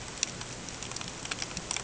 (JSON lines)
{"label": "ambient", "recorder": "HydroMoth"}